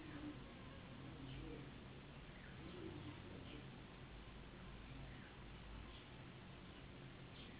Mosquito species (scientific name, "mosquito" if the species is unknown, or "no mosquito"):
Anopheles gambiae s.s.